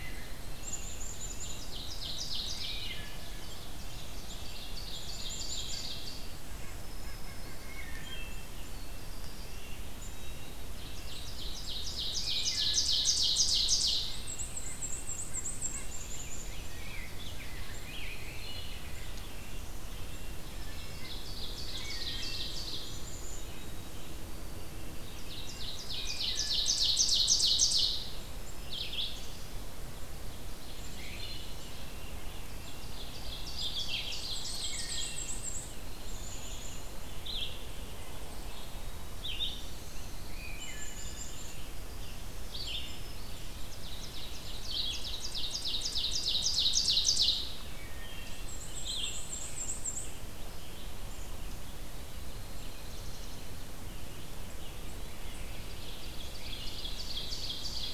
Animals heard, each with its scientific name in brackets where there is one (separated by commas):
Wood Thrush (Hylocichla mustelina), unidentified call, Black-throated Green Warbler (Setophaga virens), Black-and-white Warbler (Mniotilta varia), White-throated Sparrow (Zonotrichia albicollis), American Crow (Corvus brachyrhynchos), Red-breasted Nuthatch (Sitta canadensis), Eastern Wood-Pewee (Contopus virens), Rose-breasted Grosbeak (Pheucticus ludovicianus), Black-capped Chickadee (Poecile atricapillus), Red-eyed Vireo (Vireo olivaceus), Ovenbird (Seiurus aurocapilla)